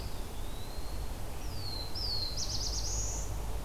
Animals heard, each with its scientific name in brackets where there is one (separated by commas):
Black-throated Blue Warbler (Setophaga caerulescens), Red-eyed Vireo (Vireo olivaceus), Eastern Wood-Pewee (Contopus virens)